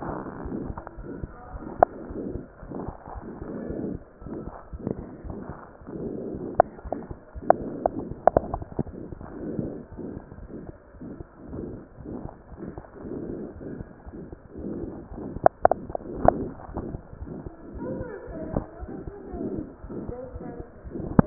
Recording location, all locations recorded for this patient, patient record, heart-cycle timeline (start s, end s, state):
aortic valve (AV)
aortic valve (AV)+mitral valve (MV)
#Age: Child
#Sex: Female
#Height: 77.0 cm
#Weight: 8.9 kg
#Pregnancy status: False
#Murmur: Present
#Murmur locations: aortic valve (AV)+mitral valve (MV)
#Most audible location: aortic valve (AV)
#Systolic murmur timing: Holosystolic
#Systolic murmur shape: Plateau
#Systolic murmur grading: I/VI
#Systolic murmur pitch: Low
#Systolic murmur quality: Blowing
#Diastolic murmur timing: nan
#Diastolic murmur shape: nan
#Diastolic murmur grading: nan
#Diastolic murmur pitch: nan
#Diastolic murmur quality: nan
#Outcome: Abnormal
#Campaign: 2015 screening campaign
0.00	0.94	unannotated
0.94	1.06	S1
1.06	1.20	systole
1.20	1.29	S2
1.29	1.52	diastole
1.52	1.62	S1
1.62	1.78	systole
1.78	1.85	S2
1.85	2.08	diastole
2.08	2.15	S1
2.15	2.33	systole
2.33	2.40	S2
2.40	2.60	diastole
2.60	2.69	S1
2.69	2.84	systole
2.84	2.95	S2
2.95	3.11	diastole
3.11	3.24	S1
3.24	3.39	systole
3.39	3.46	S2
3.46	3.69	diastole
3.69	3.75	S1
3.75	3.93	systole
3.93	3.99	S2
3.99	4.21	diastole
4.21	4.29	S1
4.29	4.44	systole
4.44	4.51	S2
4.51	4.70	diastole
4.70	4.79	S1
4.79	4.95	systole
4.95	5.04	S2
5.04	5.22	diastole
5.22	5.32	S1
5.32	5.47	systole
5.47	5.55	S2
5.55	5.79	diastole
5.79	5.88	S1
5.88	21.26	unannotated